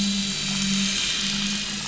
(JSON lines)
{"label": "anthrophony, boat engine", "recorder": "SoundTrap 500"}